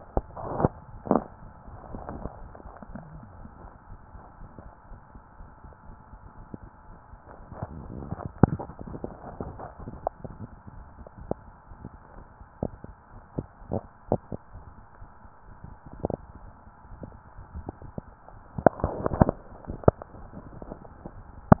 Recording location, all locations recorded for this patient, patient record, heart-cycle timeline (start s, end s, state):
mitral valve (MV)
aortic valve (AV)+pulmonary valve (PV)+tricuspid valve (TV)+mitral valve (MV)
#Age: nan
#Sex: Female
#Height: nan
#Weight: nan
#Pregnancy status: True
#Murmur: Present
#Murmur locations: pulmonary valve (PV)+tricuspid valve (TV)
#Most audible location: pulmonary valve (PV)
#Systolic murmur timing: Holosystolic
#Systolic murmur shape: Plateau
#Systolic murmur grading: I/VI
#Systolic murmur pitch: Low
#Systolic murmur quality: Harsh
#Diastolic murmur timing: nan
#Diastolic murmur shape: nan
#Diastolic murmur grading: nan
#Diastolic murmur pitch: nan
#Diastolic murmur quality: nan
#Outcome: Normal
#Campaign: 2015 screening campaign
0.00	2.88	unannotated
2.88	3.04	S1
3.04	3.10	systole
3.10	3.20	S2
3.20	3.38	diastole
3.38	3.50	S1
3.50	3.60	systole
3.60	3.70	S2
3.70	3.90	diastole
3.90	3.98	S1
3.98	4.10	systole
4.10	4.20	S2
4.20	4.37	diastole
4.37	4.50	S1
4.50	4.60	systole
4.60	4.73	S2
4.73	4.88	diastole
4.88	5.00	S1
5.00	5.10	systole
5.10	5.23	S2
5.23	5.36	diastole
5.36	5.50	S1
5.50	5.58	systole
5.58	5.71	S2
5.71	5.86	diastole
5.86	5.98	S1
5.98	6.08	systole
6.08	6.20	S2
6.20	6.37	diastole
6.37	6.46	S1
6.46	6.57	systole
6.57	6.69	S2
6.69	6.88	diastole
6.88	7.00	S1
7.00	7.10	systole
7.10	7.18	S2
7.18	7.38	diastole
7.38	7.48	S1
7.48	7.56	systole
7.56	7.70	S2
7.70	7.92	diastole
7.92	21.60	unannotated